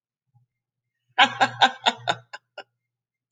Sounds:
Laughter